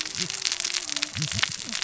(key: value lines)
label: biophony, cascading saw
recorder: SoundTrap 600 or HydroMoth